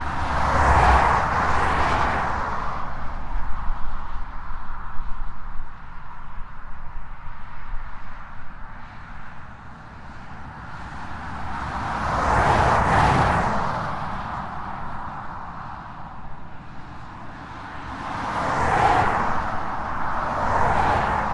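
0.0s A vehicle is approaching. 8.5s
9.9s A vehicle is approaching. 21.3s

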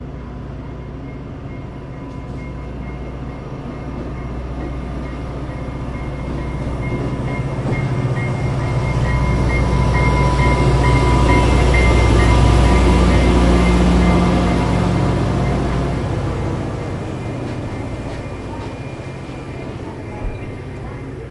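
0.0s A bell rings rhythmically, gradually increasing in volume. 21.3s
5.0s A train approaching and passing by. 18.8s

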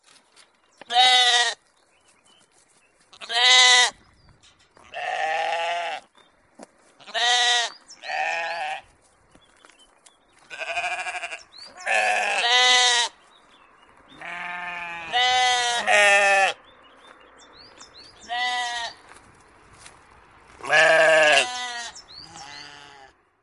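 0.1s A bird twitters in the background. 23.4s
0.8s Sheep bleating. 1.7s
3.1s Sheep bleating. 4.1s
4.8s Sheep bleating. 6.2s
6.9s Sheep bleating. 9.0s
10.4s Sheep bleating. 13.3s
14.1s Sheep bleating. 16.7s

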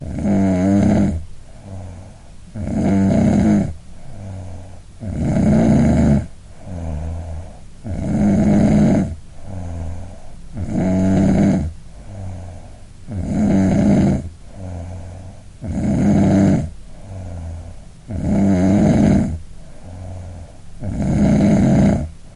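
0.0s Someone is sleeping and snoring heavily and rhythmically. 22.4s

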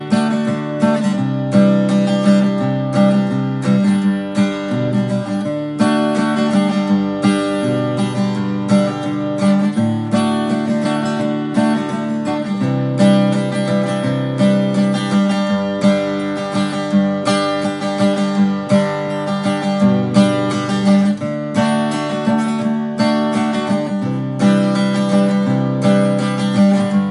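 0.0s Cheerful rhythmic guitar playing. 27.1s

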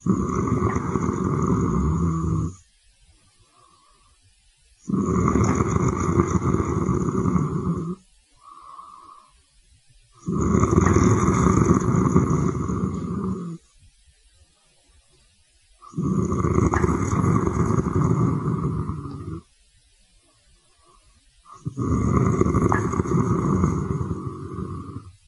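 0.0s Snoring. 2.6s
4.9s Snoring. 8.0s
10.3s Snoring. 13.6s
15.8s Snoring. 19.5s
21.5s Snoring. 25.3s

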